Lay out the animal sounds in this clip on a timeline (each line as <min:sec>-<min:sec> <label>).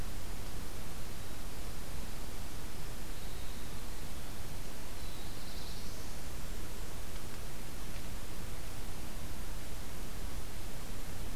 0:01.8-0:06.7 Winter Wren (Troglodytes hiemalis)
0:04.6-0:06.5 Black-throated Blue Warbler (Setophaga caerulescens)